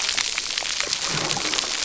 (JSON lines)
{"label": "biophony", "recorder": "SoundTrap 300"}